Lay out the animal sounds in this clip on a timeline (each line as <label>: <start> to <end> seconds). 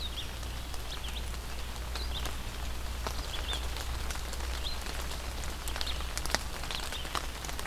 Red-eyed Vireo (Vireo olivaceus): 0.0 to 7.7 seconds